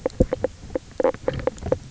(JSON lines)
{"label": "biophony, knock croak", "recorder": "SoundTrap 300"}